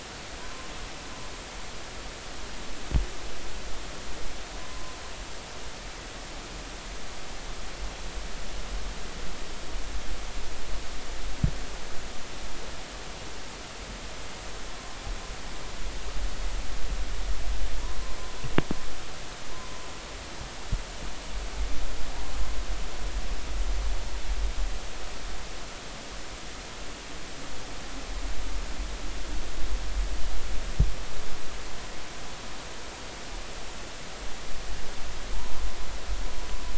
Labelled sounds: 4.6	5.0	humpback whale, 0.99 to 1.1 kHz

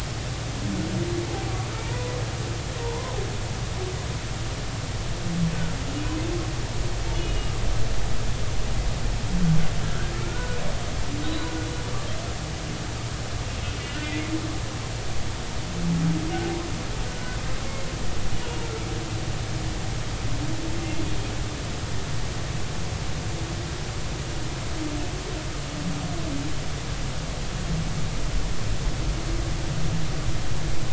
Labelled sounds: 1.2	1.5	humpback whale, 0.80 to 0.90 kHz
1.7	3.1	humpback whale, 0.83 to 1.1 kHz
7.1	7.5	humpback whale, 2.8 to 3.0 kHz
9.8	10.6	humpback whale, 1.3 to 1.7 kHz
11.2	11.5	humpback whale, 3.6 to 4.0 kHz
17.1	17.4	humpback whale, 1.4 to 1.6 kHz
18.4	18.7	humpback whale, 2.8 to 2.9 kHz

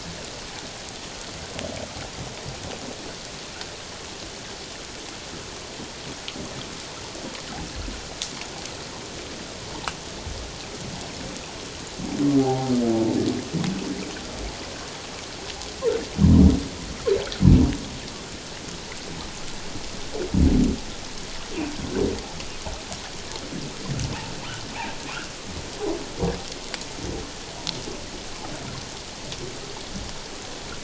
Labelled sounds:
12.4	12.7	humpback whale, 0.78 to 0.94 kHz

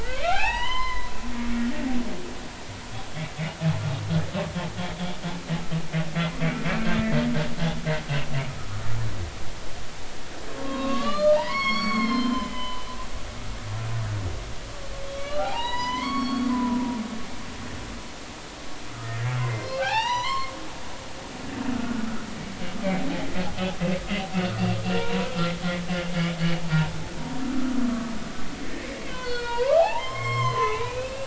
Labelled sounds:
0.0	1.1	humpback whale, 0.80 to 5.2 kHz
8.6	8.8	humpback whale, 1.1 to 1.5 kHz
10.5	12.9	humpback whale, 0.83 to 7.3 kHz
15.1	17.6	humpback whale, 0.80 to 7.0 kHz
18.9	20.5	humpback whale, 0.80 to 6.0 kHz
21.7	22.1	humpback whale, 1.3 to 1.5 kHz
24.8	25.4	humpback whale, 0.86 to 2.9 kHz
27.8	28.1	humpback whale, 1.1 to 1.2 kHz
29.1	31.2	humpback whale, 0.80 to 5.4 kHz

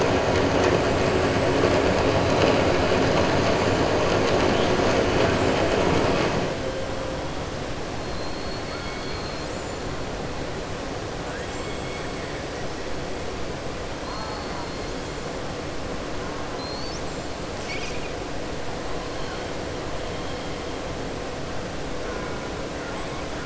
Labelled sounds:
8.1	9.5	killer whale, southern resident, 3.3 to 4.9 kHz
11.4	12.1	killer whale, southern resident, 7.3 to 8.0 kHz
14.0	14.8	killer whale, southern resident, 3.6 to 5.3 kHz
16.5	17.3	killer whale, southern resident, 4.1 to 7.8 kHz

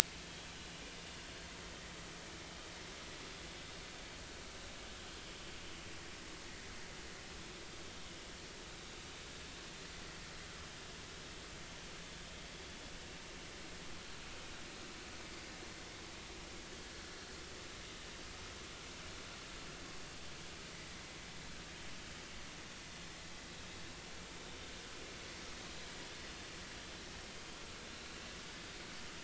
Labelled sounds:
20.0	20.3	vessel noise, 4.7 to 4.8 kHz

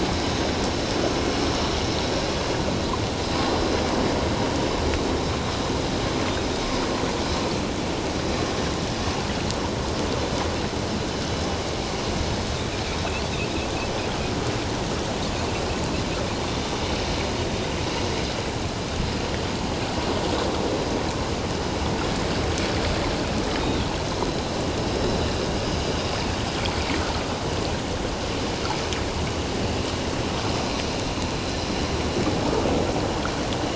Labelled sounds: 23.6	23.9	Pacific white-sided dolphin, 3.1 to 3.8 kHz

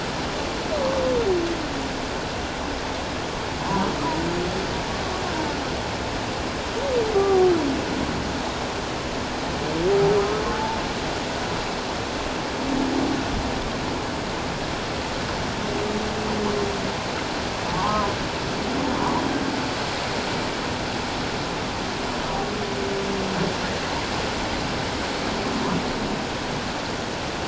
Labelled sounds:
7.1	7.5	humpback whale, 0.78 to 1.3 kHz
10.2	10.8	humpback whale, 0.84 to 1.3 kHz
17.7	18.1	humpback whale, 0.78 to 1.2 kHz

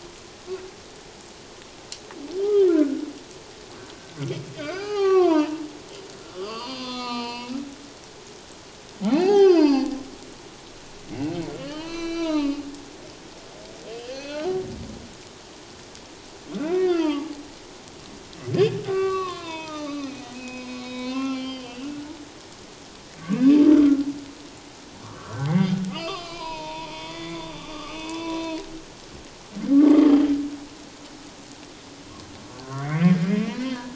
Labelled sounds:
2.7	3.0	humpback whale, 1.3 to 1.8 kHz
4.6	5.6	humpback whale, 0.78 to 5.1 kHz
6.3	7.5	humpback whale, 0.88 to 4.9 kHz
9.0	9.9	humpback whale, 0.78 to 5.2 kHz
11.6	12.6	humpback whale, 0.84 to 6.1 kHz
14.1	14.4	humpback whale, 1.5 to 4.6 kHz
16.6	17.3	humpback whale, 0.81 to 3.3 kHz
18.8	22.1	humpback whale, 0.78 to 5.2 kHz
23.3	23.6	humpback whale, 2.3 to 2.8 kHz
25.0	28.6	humpback whale, 0.88 to 5.1 kHz
29.8	30.1	humpback whale, 1.9 to 2.2 kHz
32.5	33.9	humpback whale, 1.3 to 4.5 kHz

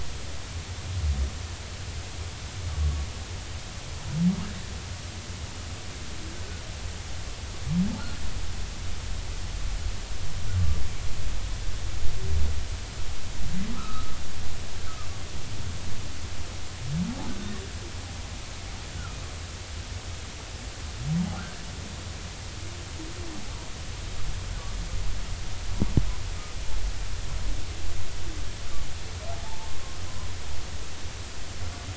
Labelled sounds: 13.7	14.2	humpback whale, 1.1 to 1.4 kHz
18.9	19.2	humpback whale, 1.2 to 1.6 kHz
29.3	29.7	humpback whale, 0.80 to 0.96 kHz

